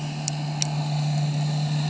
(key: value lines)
label: anthrophony, boat engine
recorder: HydroMoth